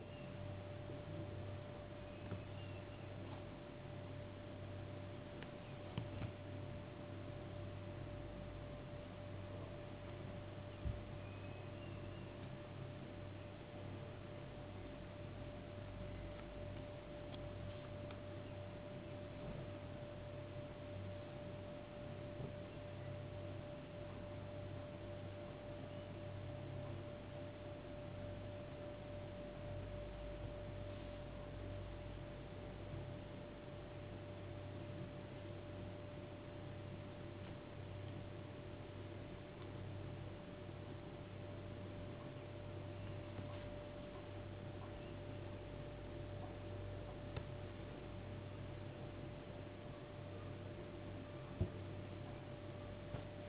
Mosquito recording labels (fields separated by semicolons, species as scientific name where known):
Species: no mosquito; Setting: insect culture